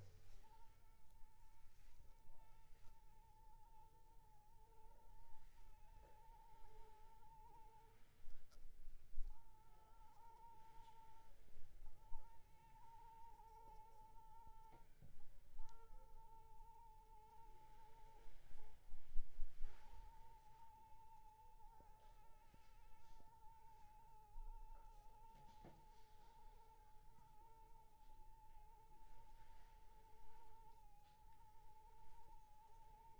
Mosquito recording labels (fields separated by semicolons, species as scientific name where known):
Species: Anopheles arabiensis; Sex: female; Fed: unfed; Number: one; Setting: cup